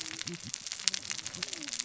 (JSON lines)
{"label": "biophony, cascading saw", "recorder": "SoundTrap 600 or HydroMoth"}